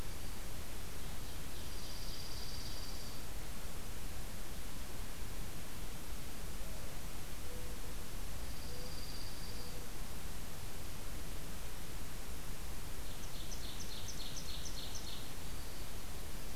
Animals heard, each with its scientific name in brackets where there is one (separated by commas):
Ovenbird (Seiurus aurocapilla), Black-throated Green Warbler (Setophaga virens), Dark-eyed Junco (Junco hyemalis), Mourning Dove (Zenaida macroura)